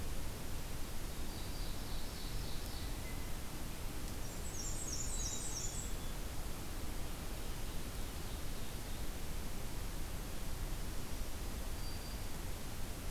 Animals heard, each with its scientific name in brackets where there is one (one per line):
Blue Jay (Cyanocitta cristata)
Black-and-white Warbler (Mniotilta varia)
Ovenbird (Seiurus aurocapilla)
Black-capped Chickadee (Poecile atricapillus)
Black-throated Green Warbler (Setophaga virens)